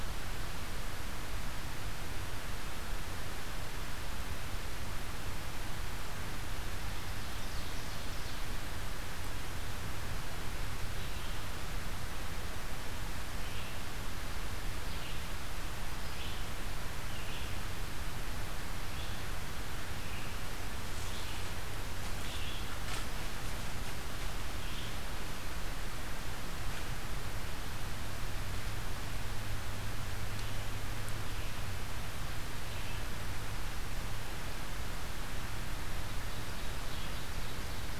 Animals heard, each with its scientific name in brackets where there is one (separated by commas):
Ovenbird (Seiurus aurocapilla), Red-eyed Vireo (Vireo olivaceus), unidentified call